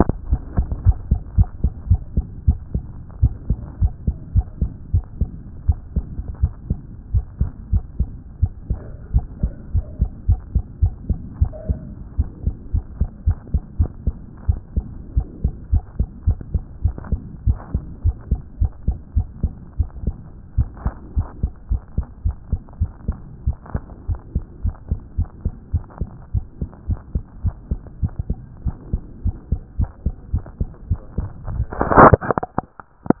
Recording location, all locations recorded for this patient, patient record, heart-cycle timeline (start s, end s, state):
aortic valve (AV)
aortic valve (AV)+pulmonary valve (PV)+tricuspid valve (TV)+mitral valve (MV)
#Age: Child
#Sex: Female
#Height: 103.0 cm
#Weight: 17.3 kg
#Pregnancy status: False
#Murmur: Absent
#Murmur locations: nan
#Most audible location: nan
#Systolic murmur timing: nan
#Systolic murmur shape: nan
#Systolic murmur grading: nan
#Systolic murmur pitch: nan
#Systolic murmur quality: nan
#Diastolic murmur timing: nan
#Diastolic murmur shape: nan
#Diastolic murmur grading: nan
#Diastolic murmur pitch: nan
#Diastolic murmur quality: nan
#Outcome: Normal
#Campaign: 2014 screening campaign
0.00	0.08	S2
0.08	0.30	diastole
0.30	0.40	S1
0.40	0.56	systole
0.56	0.66	S2
0.66	0.84	diastole
0.84	0.96	S1
0.96	1.10	systole
1.10	1.20	S2
1.20	1.36	diastole
1.36	1.48	S1
1.48	1.62	systole
1.62	1.72	S2
1.72	1.88	diastole
1.88	2.00	S1
2.00	2.16	systole
2.16	2.24	S2
2.24	2.46	diastole
2.46	2.58	S1
2.58	2.74	systole
2.74	2.84	S2
2.84	3.20	diastole
3.20	3.34	S1
3.34	3.48	systole
3.48	3.58	S2
3.58	3.80	diastole
3.80	3.92	S1
3.92	4.06	systole
4.06	4.16	S2
4.16	4.34	diastole
4.34	4.46	S1
4.46	4.60	systole
4.60	4.70	S2
4.70	4.92	diastole
4.92	5.04	S1
5.04	5.20	systole
5.20	5.30	S2
5.30	5.66	diastole
5.66	5.78	S1
5.78	5.96	systole
5.96	6.04	S2
6.04	6.40	diastole
6.40	6.52	S1
6.52	6.68	systole
6.68	6.78	S2
6.78	7.12	diastole
7.12	7.24	S1
7.24	7.40	systole
7.40	7.50	S2
7.50	7.72	diastole
7.72	7.84	S1
7.84	7.98	systole
7.98	8.08	S2
8.08	8.40	diastole
8.40	8.52	S1
8.52	8.70	systole
8.70	8.80	S2
8.80	9.14	diastole
9.14	9.26	S1
9.26	9.42	systole
9.42	9.52	S2
9.52	9.74	diastole
9.74	9.86	S1
9.86	10.00	systole
10.00	10.10	S2
10.10	10.28	diastole
10.28	10.40	S1
10.40	10.54	systole
10.54	10.64	S2
10.64	10.82	diastole
10.82	10.94	S1
10.94	11.08	systole
11.08	11.18	S2
11.18	11.40	diastole
11.40	11.52	S1
11.52	11.68	systole
11.68	11.78	S2
11.78	12.18	diastole
12.18	12.28	S1
12.28	12.44	systole
12.44	12.54	S2
12.54	12.74	diastole
12.74	12.84	S1
12.84	13.00	systole
13.00	13.08	S2
13.08	13.26	diastole
13.26	13.38	S1
13.38	13.52	systole
13.52	13.62	S2
13.62	13.78	diastole
13.78	13.90	S1
13.90	14.06	systole
14.06	14.14	S2
14.14	14.46	diastole
14.46	14.58	S1
14.58	14.76	systole
14.76	14.84	S2
14.84	15.16	diastole
15.16	15.26	S1
15.26	15.42	systole
15.42	15.52	S2
15.52	15.72	diastole
15.72	15.82	S1
15.82	15.98	systole
15.98	16.08	S2
16.08	16.26	diastole
16.26	16.38	S1
16.38	16.52	systole
16.52	16.62	S2
16.62	16.84	diastole
16.84	16.94	S1
16.94	17.10	systole
17.10	17.20	S2
17.20	17.46	diastole
17.46	17.58	S1
17.58	17.74	systole
17.74	17.82	S2
17.82	18.04	diastole
18.04	18.16	S1
18.16	18.30	systole
18.30	18.40	S2
18.40	18.60	diastole
18.60	18.72	S1
18.72	18.86	systole
18.86	18.96	S2
18.96	19.16	diastole
19.16	19.26	S1
19.26	19.42	systole
19.42	19.52	S2
19.52	19.78	diastole
19.78	19.88	S1
19.88	20.04	systole
20.04	20.16	S2
20.16	20.56	diastole
20.56	20.68	S1
20.68	20.84	systole
20.84	20.94	S2
20.94	21.16	diastole
21.16	21.28	S1
21.28	21.42	systole
21.42	21.52	S2
21.52	21.70	diastole
21.70	21.82	S1
21.82	21.96	systole
21.96	22.06	S2
22.06	22.24	diastole
22.24	22.36	S1
22.36	22.50	systole
22.50	22.60	S2
22.60	22.80	diastole
22.80	22.90	S1
22.90	23.06	systole
23.06	23.16	S2
23.16	23.46	diastole
23.46	23.56	S1
23.56	23.74	systole
23.74	23.82	S2
23.82	24.08	diastole
24.08	24.20	S1
24.20	24.34	systole
24.34	24.44	S2
24.44	24.64	diastole
24.64	24.74	S1
24.74	24.90	systole
24.90	25.00	S2
25.00	25.18	diastole
25.18	25.28	S1
25.28	25.44	systole
25.44	25.54	S2
25.54	25.72	diastole
25.72	25.84	S1
25.84	26.00	systole
26.00	26.08	S2
26.08	26.34	diastole
26.34	26.44	S1
26.44	26.60	systole
26.60	26.70	S2
26.70	26.88	diastole
26.88	27.00	S1
27.00	27.14	systole
27.14	27.24	S2
27.24	27.44	diastole
27.44	27.54	S1
27.54	27.70	systole
27.70	27.80	S2
27.80	28.02	diastole
28.02	28.12	S1
28.12	28.28	systole
28.28	28.38	S2
28.38	28.64	diastole
28.64	28.76	S1
28.76	28.92	systole
28.92	29.02	S2
29.02	29.24	diastole
29.24	29.36	S1
29.36	29.50	systole
29.50	29.60	S2
29.60	29.78	diastole
29.78	29.90	S1
29.90	30.04	systole
30.04	30.14	S2
30.14	30.32	diastole
30.32	30.44	S1
30.44	30.60	systole
30.60	30.70	S2
30.70	30.90	diastole
30.90	31.00	S1
31.00	31.18	systole
31.18	31.28	S2
31.28	31.54	diastole
31.54	31.66	S1
31.66	31.84	systole
31.84	31.90	S2
31.90	32.02	diastole
32.02	32.14	S1
32.14	32.30	systole
32.30	32.34	S2
32.34	33.20	diastole